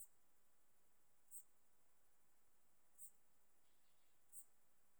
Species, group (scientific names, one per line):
Eupholidoptera schmidti
Orthoptera